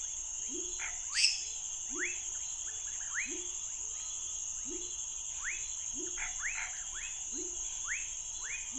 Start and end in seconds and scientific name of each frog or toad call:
0.5	8.7	Leptodactylus labyrinthicus
0.7	1.1	Boana raniceps
1.1	1.6	Dendropsophus minutus
1.1	8.7	Leptodactylus fuscus
6.1	6.8	Boana raniceps